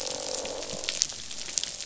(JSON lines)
{"label": "biophony, croak", "recorder": "SoundTrap 500"}